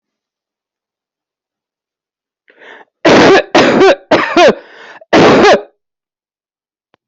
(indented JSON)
{
  "expert_labels": [
    {
      "quality": "poor",
      "cough_type": "unknown",
      "dyspnea": false,
      "wheezing": false,
      "stridor": false,
      "choking": false,
      "congestion": false,
      "nothing": true,
      "diagnosis": "healthy cough",
      "severity": "pseudocough/healthy cough"
    }
  ],
  "age": 46,
  "gender": "female",
  "respiratory_condition": false,
  "fever_muscle_pain": false,
  "status": "healthy"
}